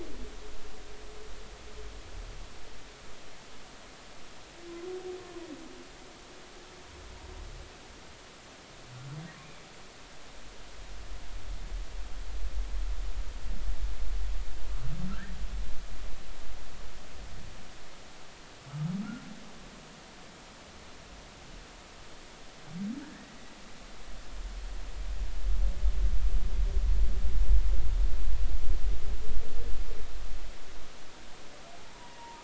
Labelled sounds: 15.1	15.3	humpback whale, 1.2 to 1.9 kHz
23.1	23.4	humpback whale, 1.6 to 2.0 kHz
31.9	32.4	humpback whale, 0.86 to 1.0 kHz

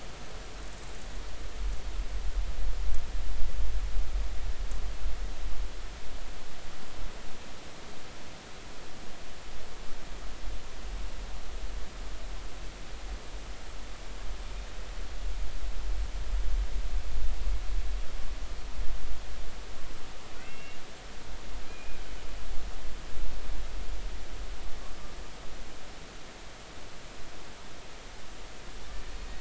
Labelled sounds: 20.4	20.8	killer whale, Bigg's (transient), 1.9 to 2.8 kHz
21.6	22.0	killer whale, Bigg's (transient), 2.3 to 2.5 kHz

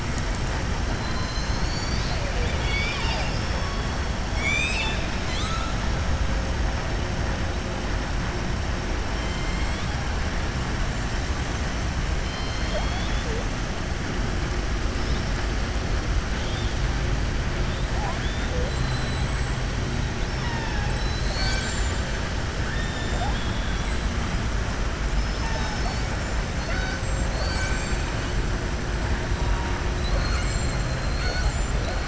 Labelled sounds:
0.9	3.7	killer whale, southern resident, 0.71 to 6.8 kHz
4.3	5.1	killer whale, southern resident, 1.8 to 7.7 kHz
16.3	16.7	killer whale, southern resident, 3.1 to 4.5 kHz
18.6	19.6	killer whale, southern resident, 3.3 to 8.0 kHz
22.6	23.9	killer whale, southern resident, 1.5 to 3.7 kHz
26.5	27.0	killer whale, southern resident, 0.66 to 5.3 kHz
27.3	28.0	killer whale, southern resident, 0.68 to 8.0 kHz
29.9	30.8	killer whale, southern resident, 0.58 to 8.0 kHz

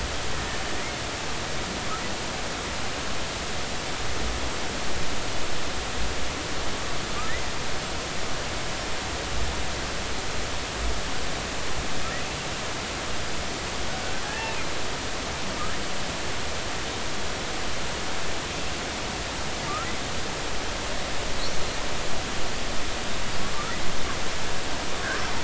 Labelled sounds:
14.2	14.7	killer whale, Bigg's (transient), 0.80 to 2.8 kHz

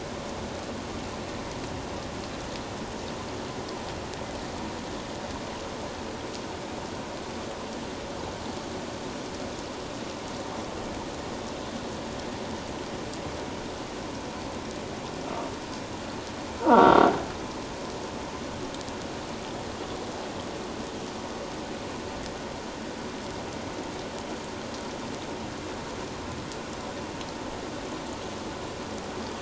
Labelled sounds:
16.6	17.1	croaking sound likely from a nearby submerged object, 0.88 to 3.8 kHz

